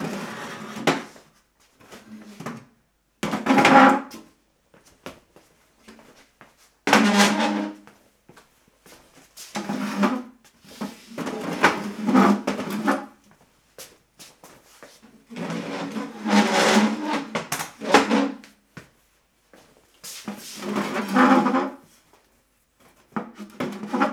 Is a cow making this noise?
no